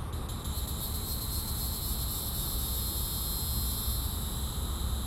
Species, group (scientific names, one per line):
Neocicada hieroglyphica
Cicadidae